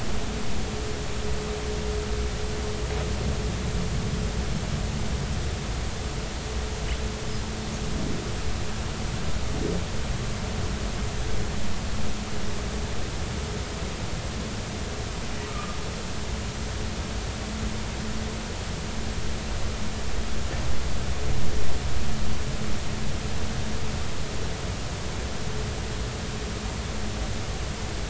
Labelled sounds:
15.4	15.8	humpback whale, 1.2 to 1.3 kHz

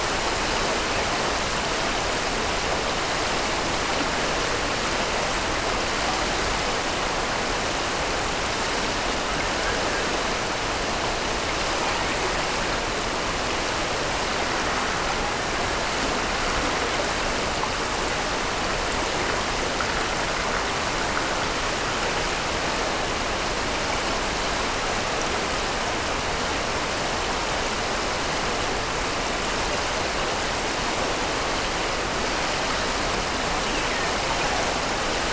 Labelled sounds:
33.5	34.3	killer whale, Bigg's (transient), Gulf of Alaska transient, 1.7 to 3.1 kHz

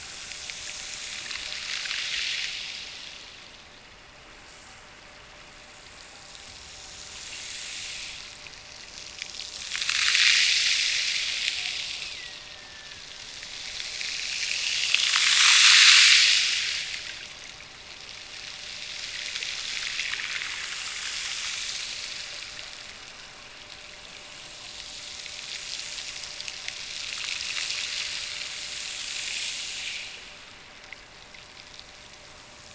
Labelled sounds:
11.9	13.0	killer whale, Bigg's (transient), Gulf of Alaska transient, 1.6 to 2.9 kHz

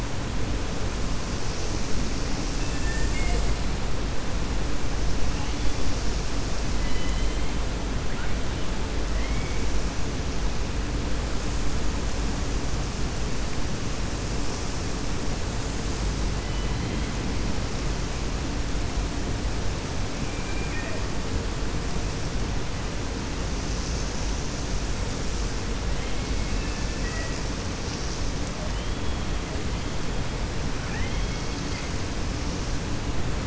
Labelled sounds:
2.6	3.4	killer whale, 0.44 to 3.6 kHz
6.7	7.4	killer whale, 1.7 to 4.1 kHz
9.1	9.6	killer whale, 1.3 to 3.2 kHz
16.4	17.1	killer whale, 2.0 to 3.1 kHz
20.3	21.0	killer whale, 1.6 to 2.6 kHz
26.4	27.3	killer whale, 1.3 to 2.7 kHz

